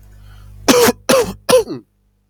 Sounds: Cough